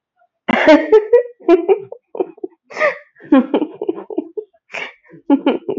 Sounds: Laughter